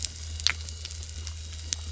{"label": "anthrophony, boat engine", "recorder": "SoundTrap 300"}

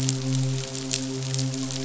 {"label": "biophony, midshipman", "recorder": "SoundTrap 500"}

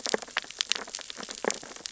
{"label": "biophony, sea urchins (Echinidae)", "recorder": "SoundTrap 600 or HydroMoth"}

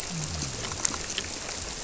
{"label": "biophony", "recorder": "SoundTrap 300"}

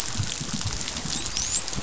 {"label": "biophony, dolphin", "recorder": "SoundTrap 500"}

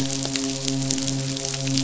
{"label": "biophony, midshipman", "recorder": "SoundTrap 500"}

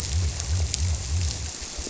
{"label": "biophony", "recorder": "SoundTrap 300"}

